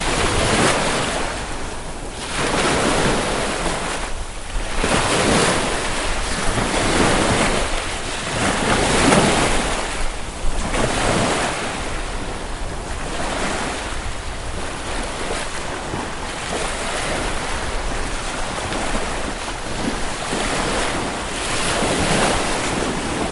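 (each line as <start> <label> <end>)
0.0 Sea waves splash against a surface in rhythmic intervals, fading away toward the end. 14.7
14.7 Calm ocean water splashing gently against surfaces and itself. 23.3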